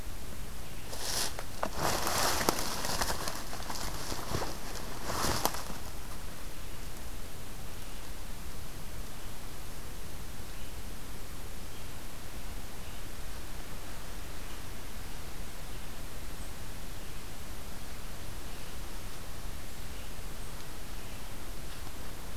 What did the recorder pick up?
Red-eyed Vireo, Black-capped Chickadee